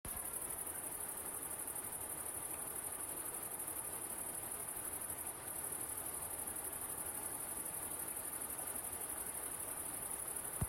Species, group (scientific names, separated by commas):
Tettigonia viridissima, Orthoptera